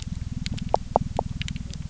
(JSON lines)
{"label": "biophony", "recorder": "SoundTrap 300"}